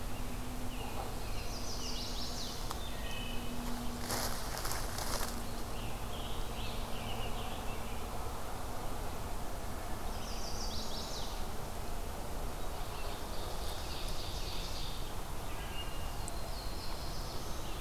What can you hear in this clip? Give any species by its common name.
American Robin, Chestnut-sided Warbler, Wood Thrush, Scarlet Tanager, Ovenbird, Black-throated Blue Warbler